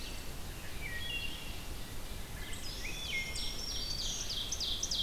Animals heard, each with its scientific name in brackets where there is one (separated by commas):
Black-throated Green Warbler (Setophaga virens), Wood Thrush (Hylocichla mustelina), Red-eyed Vireo (Vireo olivaceus), Ovenbird (Seiurus aurocapilla)